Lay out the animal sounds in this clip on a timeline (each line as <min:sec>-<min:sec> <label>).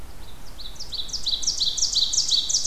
0:00.0-0:02.7 Ovenbird (Seiurus aurocapilla)